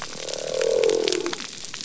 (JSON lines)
{"label": "biophony", "recorder": "SoundTrap 300"}